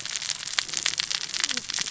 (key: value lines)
label: biophony, cascading saw
recorder: SoundTrap 600 or HydroMoth